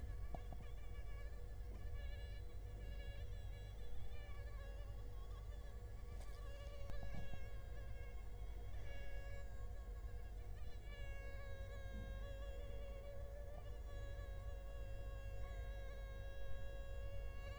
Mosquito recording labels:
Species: Culex quinquefasciatus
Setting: cup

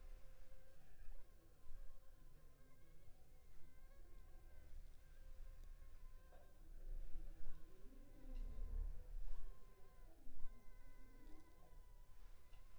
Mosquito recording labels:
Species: Anopheles funestus s.s.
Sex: female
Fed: unfed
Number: one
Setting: cup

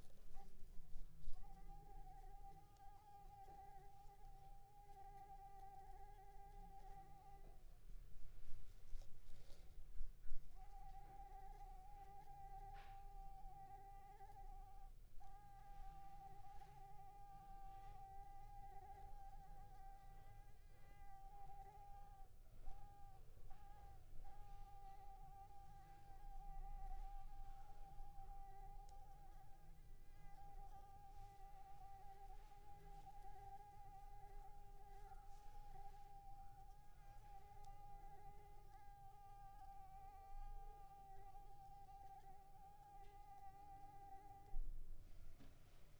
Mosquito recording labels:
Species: Anopheles squamosus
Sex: female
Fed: unfed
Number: one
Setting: cup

